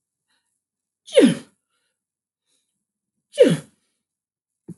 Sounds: Sneeze